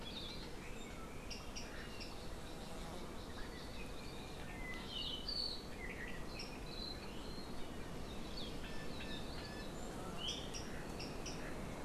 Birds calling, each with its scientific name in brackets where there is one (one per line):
Hawaii Akepa (Loxops coccineus)